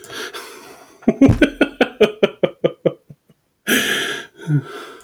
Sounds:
Laughter